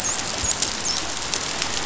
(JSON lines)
{"label": "biophony, dolphin", "recorder": "SoundTrap 500"}